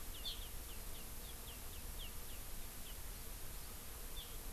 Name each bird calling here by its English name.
Iiwi